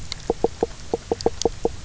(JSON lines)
{"label": "biophony, knock croak", "recorder": "SoundTrap 300"}